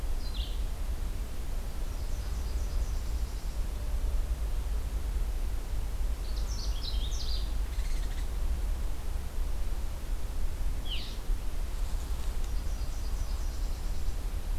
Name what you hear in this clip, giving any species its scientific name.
Vireo olivaceus, Leiothlypis ruficapilla, Cardellina canadensis